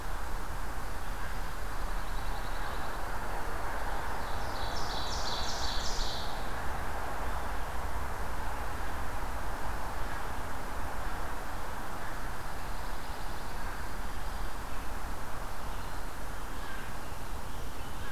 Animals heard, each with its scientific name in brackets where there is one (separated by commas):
Pine Warbler (Setophaga pinus), Ovenbird (Seiurus aurocapilla)